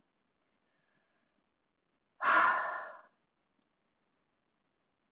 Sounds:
Sigh